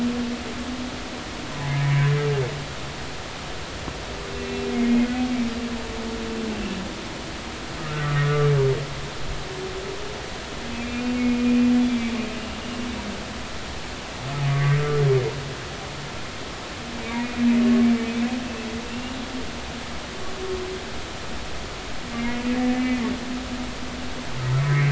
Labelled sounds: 1.8	2.1	humpback whale, 2.2 to 2.4 kHz
4.3	5.1	humpback whale, 2.0 to 2.7 kHz
6.5	6.8	humpback whale, 2.6 to 2.7 kHz
8.0	8.5	humpback whale, 1.1 to 1.5 kHz
10.7	11.5	humpback whale, 2.3 to 2.8 kHz
11.9	12.1	humpback whale, 2.2 to 2.4 kHz
14.5	14.8	humpback whale, 1.1 to 2.2 kHz
17.0	17.5	humpback whale, 2.1 to 2.5 kHz
18.9	19.2	humpback whale, 2.6 to 3.0 kHz
22.1	22.4	humpback whale, 2.1 to 2.2 kHz
22.7	23.0	humpback whale, 2.0 to 2.6 kHz
24.6	24.9	humpback whale, 1.8 to 2.3 kHz

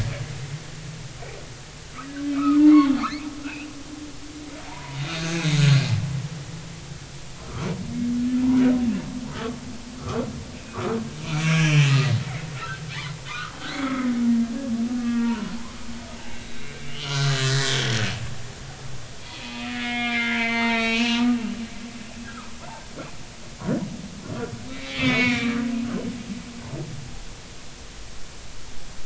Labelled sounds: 2.3	2.9	humpback whale, 0.83 to 2.8 kHz
3.4	3.7	humpback whale, 2.3 to 3.0 kHz
4.6	5.3	humpback whale, 0.80 to 3.8 kHz
7.4	7.7	humpback whale, 1.1 to 1.4 kHz
10.0	14.1	humpback whale, 0.93 to 4.4 kHz
15.0	15.5	humpback whale, 0.86 to 2.0 kHz
16.2	18.0	humpback whale, 1.1 to 4.1 kHz
19.2	21.2	humpback whale, 0.86 to 6.3 kHz
22.3	22.5	humpback whale, 1.2 to 1.7 kHz
24.7	25.7	humpback whale, 1.1 to 6.8 kHz

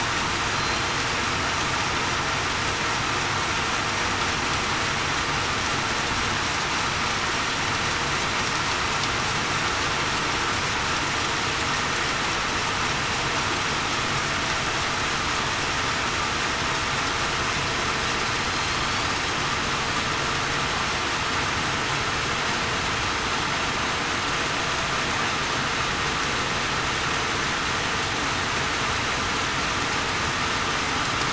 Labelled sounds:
18.4	18.8	killer whale, southern resident, 4.1 to 4.3 kHz

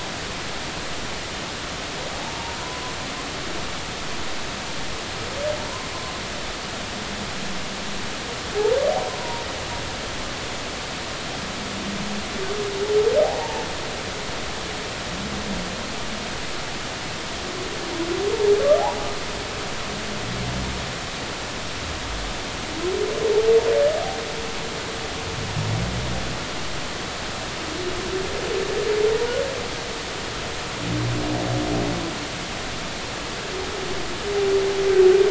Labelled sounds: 2.1	2.6	humpback whale, 0.80 to 0.99 kHz
9.2	9.4	humpback whale, 0.90 to 1.0 kHz
13.2	13.7	humpback whale, 0.80 to 0.96 kHz

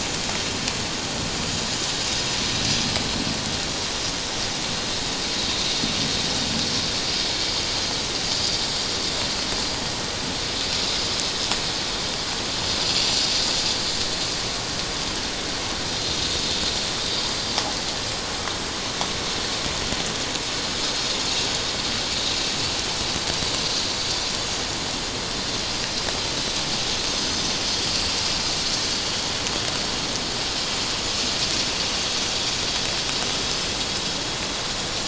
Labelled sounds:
27.1	27.5	vessel noise, 4.9 to 5.1 kHz

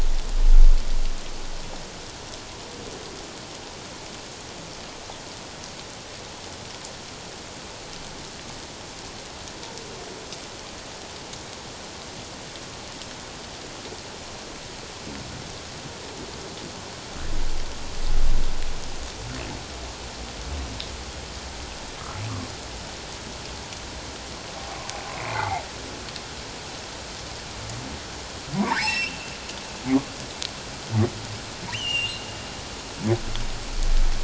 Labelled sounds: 25.1	25.6	humpback whale, 0.78 to 2.5 kHz
28.6	29.3	humpback whale, 0.78 to 5.6 kHz
31.7	32.3	humpback whale, 2.6 to 3.2 kHz

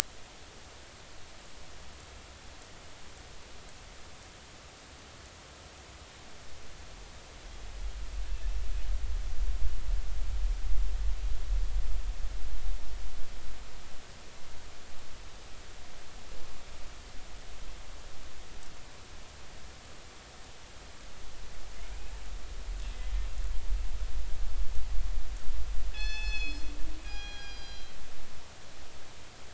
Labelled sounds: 25.9	27.9	killer whale, northern resident, G clan, call N24ii, 0.80 to 6.9 kHz

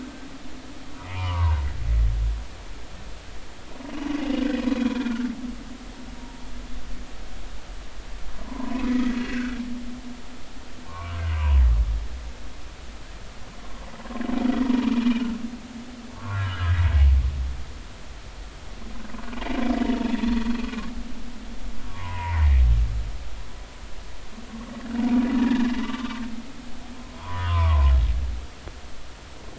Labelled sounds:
0.0	1.6	humpback whale, 0.86 to 2.5 kHz
4.2	4.5	humpback whale, 2.8 to 3.0 kHz
4.9	5.3	humpback whale, 1.3 to 1.7 kHz
8.3	9.6	humpback whale, 0.86 to 2.1 kHz
10.1	11.6	humpback whale, 0.90 to 2.9 kHz
14.6	15.3	humpback whale, 0.90 to 3.0 kHz
16.2	16.8	humpback whale, 0.99 to 1.8 kHz
20.2	20.5	humpback whale, 4.0 to 4.4 kHz
21.8	22.4	humpback whale, 0.86 to 1.2 kHz
25.3	26.2	humpback whale, 1.0 to 3.0 kHz
27.2	27.9	humpback whale, 0.83 to 1.3 kHz

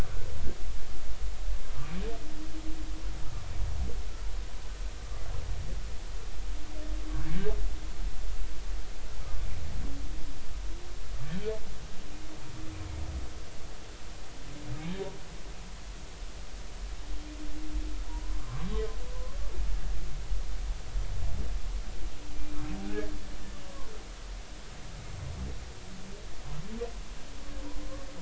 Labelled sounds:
18.1	18.7	humpback whale, 0.86 to 1.2 kHz
23.7	23.9	humpback whale, 0.90 to 1.2 kHz

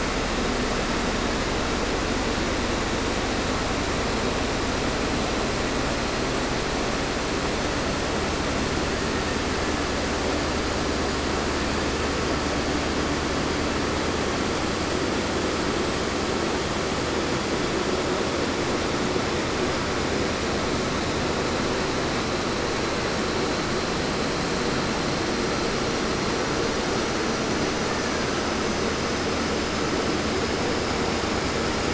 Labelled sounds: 27.8	28.7	killer whale, Bigg's (transient), 0.94 to 2.2 kHz

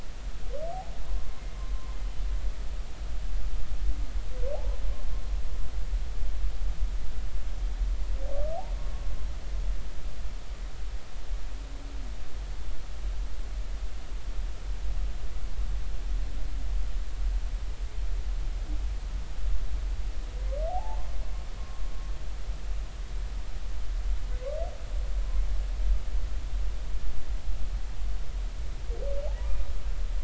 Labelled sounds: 1.1	1.4	humpback whale, 0.93 to 1.2 kHz
2.0	2.2	humpback whale, 3.0 to 3.1 kHz
4.5	4.8	humpback whale, 0.80 to 1.1 kHz
20.7	21.0	humpback whale, 0.80 to 0.96 kHz

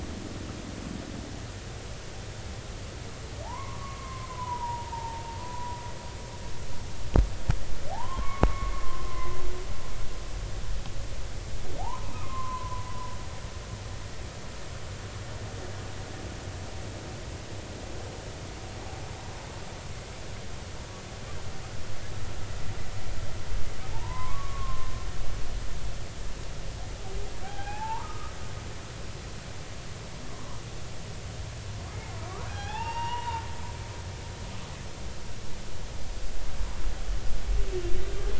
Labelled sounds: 3.4	5.8	humpback whale, 0.80 to 1.2 kHz
7.9	9.4	humpback whale, 0.80 to 2.2 kHz
11.8	12.8	humpback whale, 0.80 to 1.1 kHz
23.9	24.9	humpback whale, 0.83 to 1.2 kHz
27.4	28.3	humpback whale, 0.80 to 3.3 kHz
30.3	30.6	humpback whale, 0.93 to 1.2 kHz
32.5	33.4	humpback whale, 0.80 to 3.7 kHz

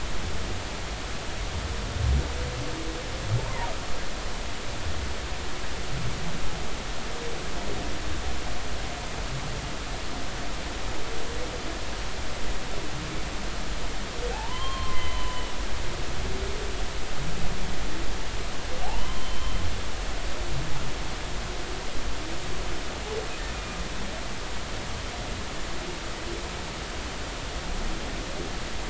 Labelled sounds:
3.4	3.7	humpback whale, 0.83 to 1.1 kHz
14.3	15.5	humpback whale, 0.80 to 3.3 kHz
18.8	19.5	humpback whale, 0.80 to 3.2 kHz

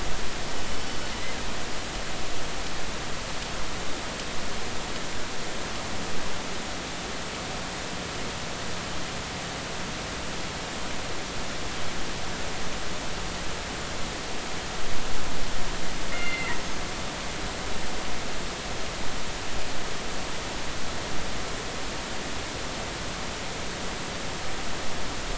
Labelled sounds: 16.1	16.6	killer whale, northern resident, G clan, GI subclan, call N24i, 1.8 to 2.8 kHz

